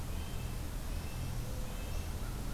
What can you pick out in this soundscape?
Red-breasted Nuthatch, Northern Parula